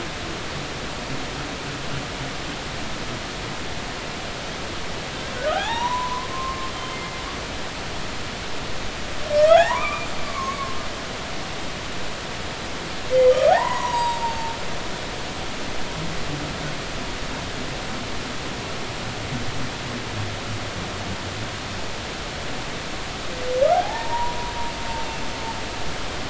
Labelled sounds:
5.4	7.2	humpback whale, 0.80 to 3.9 kHz
9.4	10.8	humpback whale, 0.80 to 2.5 kHz
13.3	14.5	humpback whale, 0.80 to 7.7 kHz
23.7	24.5	humpback whale, 0.80 to 1.0 kHz

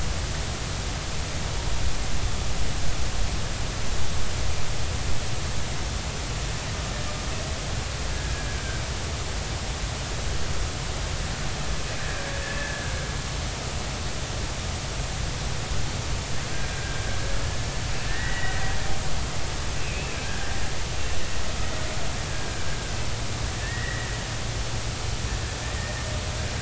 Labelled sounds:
8.1	8.5	killer whale, Bigg's (transient), 1.6 to 1.7 kHz
12.0	12.9	killer whale, Bigg's (transient), 1.5 to 1.9 kHz
16.7	17.1	killer whale, Bigg's (transient), 1.5 to 1.7 kHz
18.1	18.6	killer whale, Bigg's (transient), 1.7 to 2.0 kHz
19.8	20.6	killer whale, Bigg's (transient), 1.4 to 2.8 kHz
22.3	22.6	killer whale, Bigg's (transient), 1.5 to 1.7 kHz
23.6	24.1	killer whale, Bigg's (transient), 1.7 to 2.0 kHz
25.6	26.0	killer whale, Bigg's (transient), 1.7 to 2.0 kHz

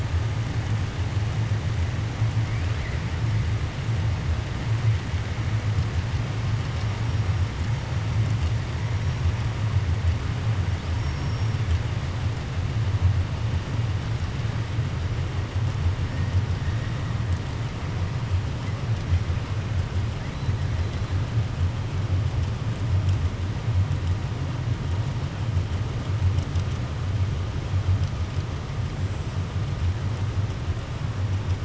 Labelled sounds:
10.9	11.5	killer whale, 5.1 to 6.5 kHz

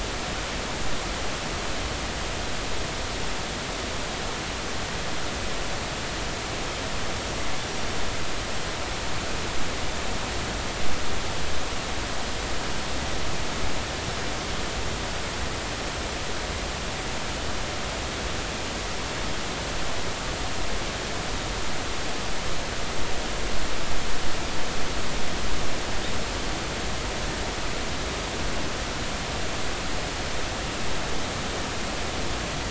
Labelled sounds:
7.6	7.9	killer whale, northern resident, 5.7 to 5.8 kHz

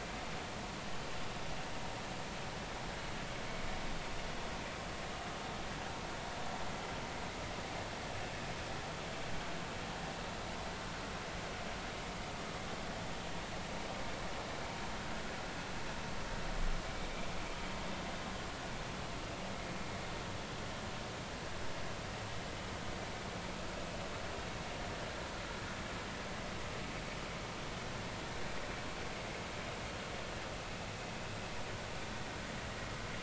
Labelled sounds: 29.2	29.5	vessel noise, 2.0 to 2.2 kHz

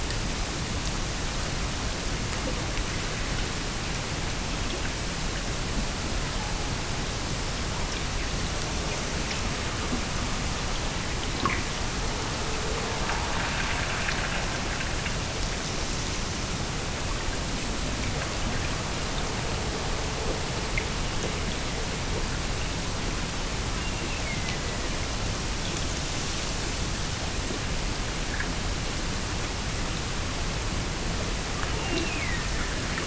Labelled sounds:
23.8	24.9	killer whale, Bigg's (transient), Gulf of Alaska transient, 1.8 to 2.8 kHz
31.8	33.0	killer whale, Bigg's (transient), Gulf of Alaska transient, 1.6 to 2.9 kHz

